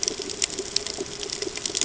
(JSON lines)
{"label": "ambient", "recorder": "HydroMoth"}